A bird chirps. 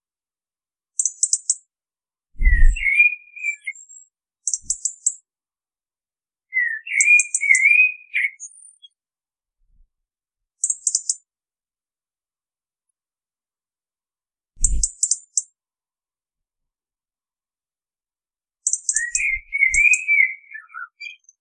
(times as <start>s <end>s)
2.3s 4.0s, 6.5s 8.9s, 19.1s 21.3s